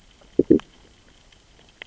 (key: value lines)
label: biophony, growl
recorder: SoundTrap 600 or HydroMoth